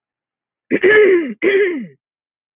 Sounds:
Throat clearing